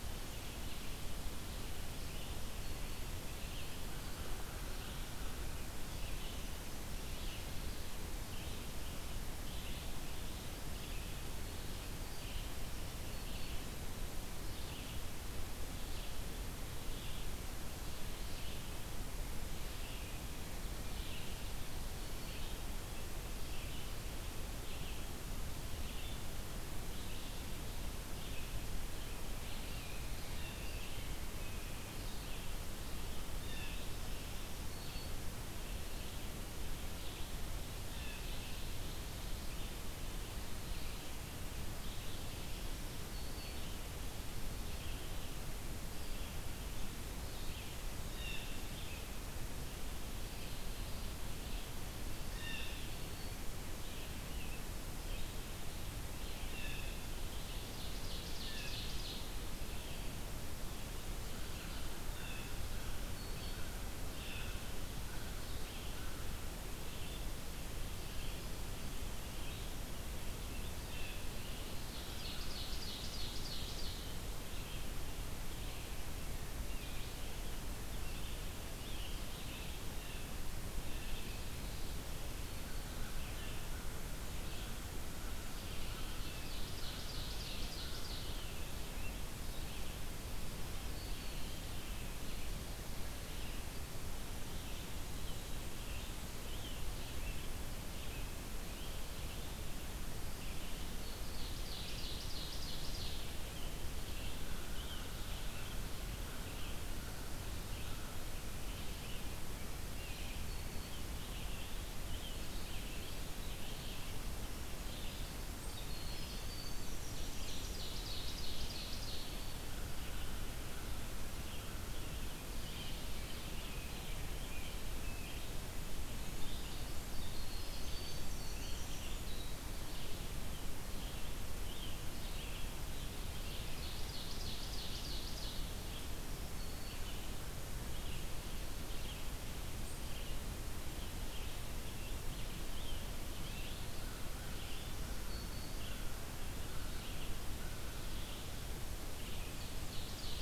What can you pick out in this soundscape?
Red-eyed Vireo, American Crow, Black-throated Green Warbler, Blue Jay, Ovenbird, Winter Wren